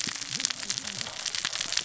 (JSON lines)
{"label": "biophony, cascading saw", "recorder": "SoundTrap 600 or HydroMoth"}